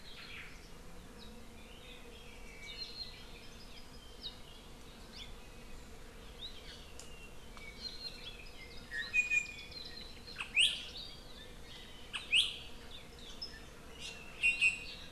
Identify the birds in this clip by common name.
Omao, Apapane, Iiwi